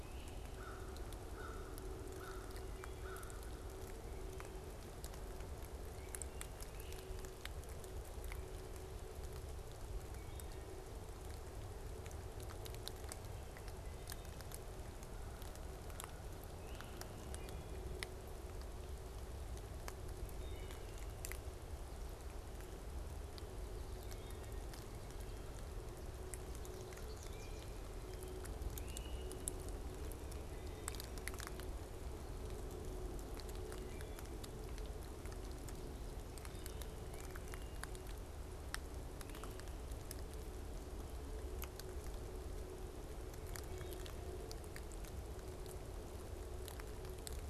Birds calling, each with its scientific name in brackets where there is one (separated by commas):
Wood Thrush (Hylocichla mustelina), American Crow (Corvus brachyrhynchos), American Goldfinch (Spinus tristis), Great Crested Flycatcher (Myiarchus crinitus)